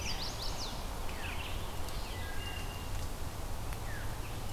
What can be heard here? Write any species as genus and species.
Setophaga pensylvanica, Vireo olivaceus, Hylocichla mustelina